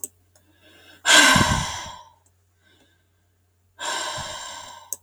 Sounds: Sigh